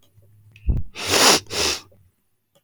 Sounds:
Sniff